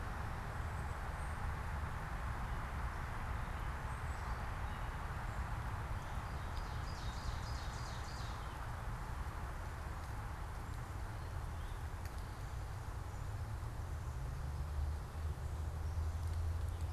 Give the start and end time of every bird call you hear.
[6.01, 8.62] Ovenbird (Seiurus aurocapilla)

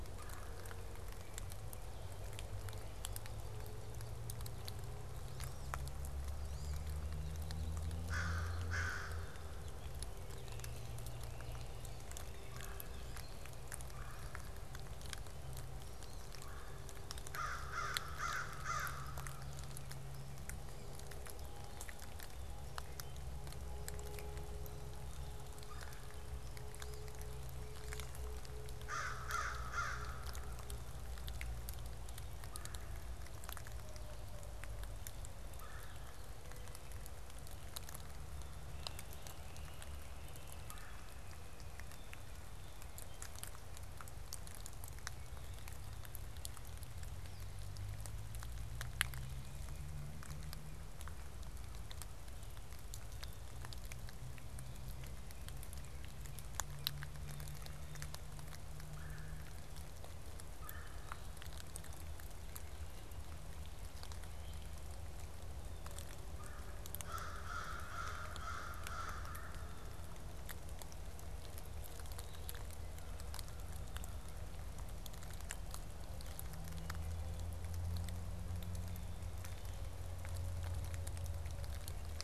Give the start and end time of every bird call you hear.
[0.00, 1.00] Red-bellied Woodpecker (Melanerpes carolinus)
[6.40, 6.90] Wood Duck (Aix sponsa)
[7.90, 9.60] American Crow (Corvus brachyrhynchos)
[10.40, 11.90] Great Crested Flycatcher (Myiarchus crinitus)
[11.20, 16.70] Wood Duck (Aix sponsa)
[12.20, 16.90] Red-bellied Woodpecker (Melanerpes carolinus)
[17.00, 19.60] American Crow (Corvus brachyrhynchos)
[25.50, 26.20] Red-bellied Woodpecker (Melanerpes carolinus)
[26.40, 27.50] Wood Duck (Aix sponsa)
[28.70, 30.70] American Crow (Corvus brachyrhynchos)
[32.30, 32.90] Red-bellied Woodpecker (Melanerpes carolinus)
[35.40, 36.10] Red-bellied Woodpecker (Melanerpes carolinus)
[38.60, 40.80] Great Crested Flycatcher (Myiarchus crinitus)
[40.50, 41.40] Red-bellied Woodpecker (Melanerpes carolinus)
[47.00, 47.60] Wood Duck (Aix sponsa)
[58.70, 59.70] Red-bellied Woodpecker (Melanerpes carolinus)
[60.50, 61.30] Red-bellied Woodpecker (Melanerpes carolinus)
[66.90, 70.20] American Crow (Corvus brachyrhynchos)

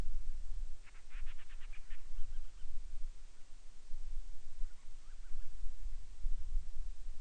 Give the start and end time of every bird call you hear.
[0.80, 2.80] Band-rumped Storm-Petrel (Hydrobates castro)
[4.60, 5.60] Band-rumped Storm-Petrel (Hydrobates castro)

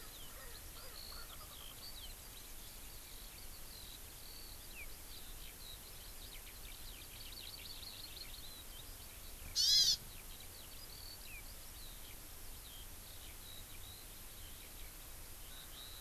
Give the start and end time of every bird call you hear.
[0.00, 1.99] Erckel's Francolin (Pternistis erckelii)
[0.00, 16.01] Eurasian Skylark (Alauda arvensis)
[9.59, 9.98] Hawaii Amakihi (Chlorodrepanis virens)

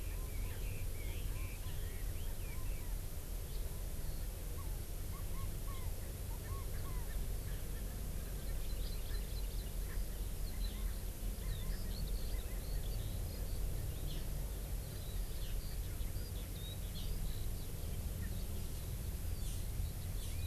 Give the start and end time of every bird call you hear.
[0.00, 3.00] Red-billed Leiothrix (Leiothrix lutea)
[7.70, 7.80] Erckel's Francolin (Pternistis erckelii)
[8.30, 9.70] Hawaii Amakihi (Chlorodrepanis virens)
[9.10, 9.20] Erckel's Francolin (Pternistis erckelii)
[9.90, 10.00] Erckel's Francolin (Pternistis erckelii)
[10.50, 13.70] Eurasian Skylark (Alauda arvensis)
[14.10, 14.30] Hawaii Amakihi (Chlorodrepanis virens)
[14.80, 17.70] Eurasian Skylark (Alauda arvensis)
[16.90, 17.10] Hawaii Amakihi (Chlorodrepanis virens)
[19.40, 19.60] Hawaii Amakihi (Chlorodrepanis virens)
[20.20, 20.40] Hawaii Amakihi (Chlorodrepanis virens)

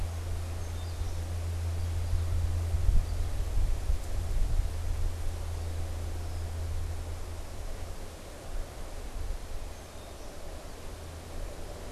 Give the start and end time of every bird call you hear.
[0.42, 1.52] Song Sparrow (Melospiza melodia)
[2.82, 3.42] American Goldfinch (Spinus tristis)
[6.02, 6.62] Red-winged Blackbird (Agelaius phoeniceus)
[9.52, 10.62] Song Sparrow (Melospiza melodia)

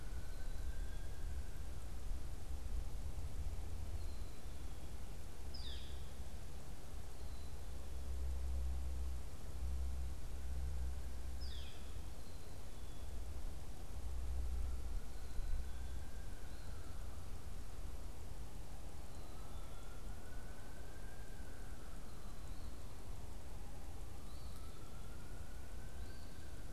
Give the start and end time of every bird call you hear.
[0.13, 1.13] Black-capped Chickadee (Poecile atricapillus)
[3.73, 5.03] Black-capped Chickadee (Poecile atricapillus)
[5.43, 6.03] Northern Flicker (Colaptes auratus)
[7.03, 7.83] Black-capped Chickadee (Poecile atricapillus)
[11.23, 11.83] Northern Flicker (Colaptes auratus)
[12.13, 13.23] Black-capped Chickadee (Poecile atricapillus)
[16.23, 16.93] Eastern Phoebe (Sayornis phoebe)
[19.03, 20.03] Black-capped Chickadee (Poecile atricapillus)
[23.83, 26.63] Eastern Phoebe (Sayornis phoebe)

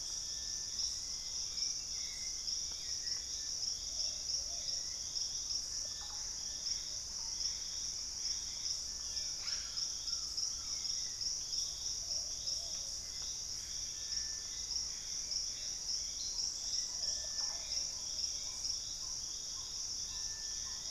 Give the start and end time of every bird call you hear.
[0.00, 20.91] Plumbeous Pigeon (Patagioenas plumbea)
[0.38, 20.91] Hauxwell's Thrush (Turdus hauxwelli)
[5.68, 6.48] Russet-backed Oropendola (Psarocolius angustifrons)
[6.48, 8.68] Gray Antbird (Cercomacra cinerascens)
[9.08, 9.98] Ash-throated Gnateater (Conopophaga peruviana)
[9.18, 10.88] Collared Trogon (Trogon collaris)
[13.58, 16.48] Gray Antbird (Cercomacra cinerascens)
[16.18, 20.91] Black-tailed Trogon (Trogon melanurus)
[16.88, 17.98] Russet-backed Oropendola (Psarocolius angustifrons)

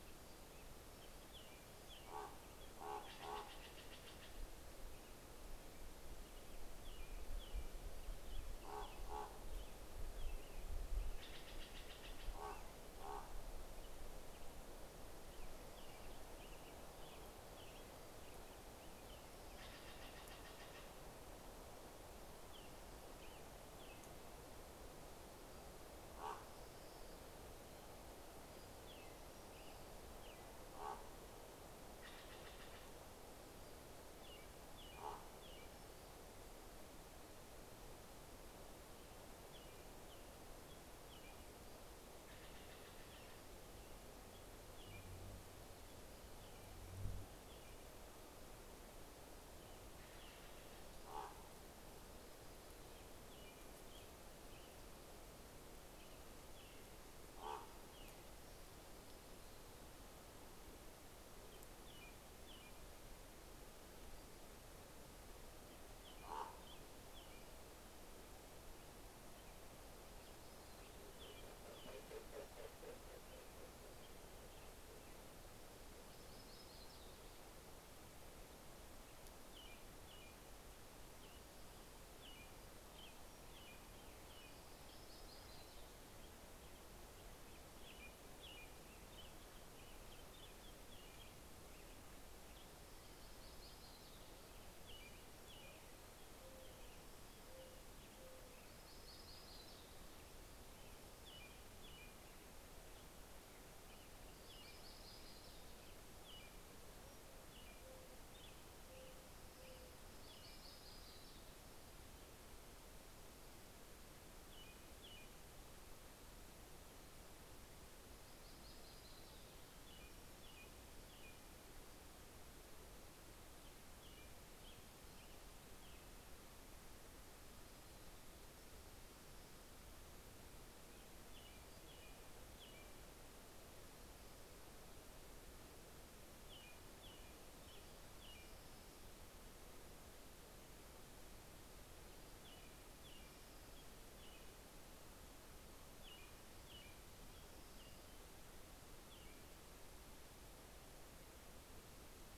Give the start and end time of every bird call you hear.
[0.00, 19.68] American Robin (Turdus migratorius)
[1.77, 4.58] Common Raven (Corvus corax)
[2.27, 4.88] Steller's Jay (Cyanocitta stelleri)
[7.78, 10.47] Common Raven (Corvus corax)
[10.68, 12.88] Steller's Jay (Cyanocitta stelleri)
[11.97, 13.68] Common Raven (Corvus corax)
[19.27, 21.07] Steller's Jay (Cyanocitta stelleri)
[22.38, 24.48] American Robin (Turdus migratorius)
[25.88, 26.57] Common Raven (Corvus corax)
[25.88, 29.77] Pacific-slope Flycatcher (Empidonax difficilis)
[28.48, 31.38] American Robin (Turdus migratorius)
[30.27, 31.38] Common Raven (Corvus corax)
[31.77, 33.38] Steller's Jay (Cyanocitta stelleri)
[33.48, 36.38] Pacific-slope Flycatcher (Empidonax difficilis)
[33.67, 36.17] American Robin (Turdus migratorius)
[34.77, 35.77] Common Raven (Corvus corax)
[38.48, 58.67] American Robin (Turdus migratorius)
[41.17, 43.77] Pacific-slope Flycatcher (Empidonax difficilis)
[41.98, 43.77] Steller's Jay (Cyanocitta stelleri)
[49.48, 51.38] Steller's Jay (Cyanocitta stelleri)
[50.77, 51.98] Common Raven (Corvus corax)
[56.98, 58.17] Common Raven (Corvus corax)
[60.67, 64.28] American Robin (Turdus migratorius)
[65.67, 75.58] American Robin (Turdus migratorius)
[66.08, 67.17] Common Raven (Corvus corax)
[70.97, 74.58] Common Raven (Corvus corax)
[78.97, 97.97] American Robin (Turdus migratorius)
[84.38, 86.47] Yellow-rumped Warbler (Setophaga coronata)
[92.47, 95.28] Yellow-rumped Warbler (Setophaga coronata)
[95.28, 99.38] Mourning Dove (Zenaida macroura)
[98.58, 100.47] Yellow-rumped Warbler (Setophaga coronata)
[100.97, 110.47] American Robin (Turdus migratorius)
[104.08, 106.28] Yellow-rumped Warbler (Setophaga coronata)
[107.38, 110.28] Mourning Dove (Zenaida macroura)
[109.88, 111.78] Yellow-rumped Warbler (Setophaga coronata)
[113.97, 116.08] American Robin (Turdus migratorius)
[117.58, 119.78] Yellow-rumped Warbler (Setophaga coronata)
[119.28, 122.17] American Robin (Turdus migratorius)
[123.47, 126.58] American Robin (Turdus migratorius)
[130.28, 133.68] American Robin (Turdus migratorius)
[136.28, 139.18] American Robin (Turdus migratorius)
[142.38, 145.18] American Robin (Turdus migratorius)
[142.47, 144.57] Orange-crowned Warbler (Leiothlypis celata)
[145.88, 146.88] American Robin (Turdus migratorius)
[146.97, 148.68] Orange-crowned Warbler (Leiothlypis celata)
[147.18, 149.57] American Robin (Turdus migratorius)

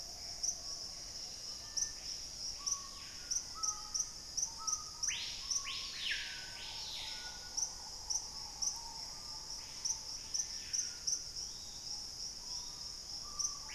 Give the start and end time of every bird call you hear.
[0.00, 0.73] Gray Antbird (Cercomacra cinerascens)
[0.00, 1.93] Dusky-capped Greenlet (Pachysylvia hypoxantha)
[0.00, 13.74] Screaming Piha (Lipaugus vociferans)
[2.63, 4.73] Black-faced Antthrush (Formicarius analis)
[8.03, 9.63] Gray Antbird (Cercomacra cinerascens)
[11.13, 13.13] Yellow-margined Flycatcher (Tolmomyias assimilis)

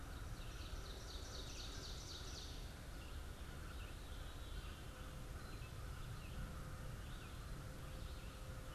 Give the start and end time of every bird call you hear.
[0.00, 2.95] Ovenbird (Seiurus aurocapilla)
[0.00, 8.74] American Crow (Corvus brachyrhynchos)
[0.00, 8.74] Red-eyed Vireo (Vireo olivaceus)
[0.00, 8.74] Veery (Catharus fuscescens)

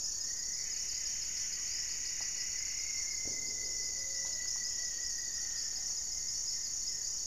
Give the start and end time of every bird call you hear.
[0.00, 3.29] Plumbeous Antbird (Myrmelastes hyperythrus)
[0.00, 7.26] Buff-breasted Wren (Cantorchilus leucotis)
[0.00, 7.26] Gray-fronted Dove (Leptotila rufaxilla)
[0.09, 5.99] Rufous-fronted Antthrush (Formicarius rufifrons)
[5.38, 7.26] Goeldi's Antbird (Akletos goeldii)

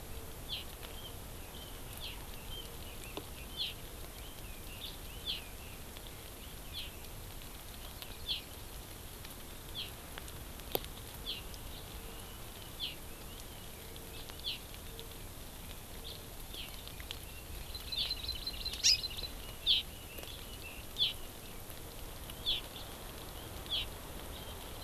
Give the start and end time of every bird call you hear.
[0.52, 0.61] Hawaii Amakihi (Chlorodrepanis virens)
[0.92, 5.71] Red-billed Leiothrix (Leiothrix lutea)
[2.02, 2.12] Hawaii Amakihi (Chlorodrepanis virens)
[3.52, 3.71] Hawaii Amakihi (Chlorodrepanis virens)
[4.82, 5.51] Hawaii Amakihi (Chlorodrepanis virens)
[6.71, 7.01] Hawaii Amakihi (Chlorodrepanis virens)
[8.21, 8.41] Hawaii Amakihi (Chlorodrepanis virens)
[9.71, 9.91] Hawaii Amakihi (Chlorodrepanis virens)
[11.21, 11.41] Hawaii Amakihi (Chlorodrepanis virens)
[12.02, 14.41] Red-billed Leiothrix (Leiothrix lutea)
[12.81, 13.02] Hawaii Amakihi (Chlorodrepanis virens)
[14.41, 14.62] Hawaii Amakihi (Chlorodrepanis virens)
[16.52, 16.82] Hawaii Amakihi (Chlorodrepanis virens)
[17.21, 20.82] Red-billed Leiothrix (Leiothrix lutea)
[17.71, 19.32] Hawaii Amakihi (Chlorodrepanis virens)
[19.61, 19.82] Hawaii Amakihi (Chlorodrepanis virens)
[21.02, 21.11] Hawaii Amakihi (Chlorodrepanis virens)
[22.41, 22.61] Hawaii Amakihi (Chlorodrepanis virens)

